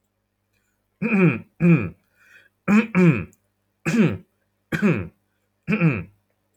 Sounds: Throat clearing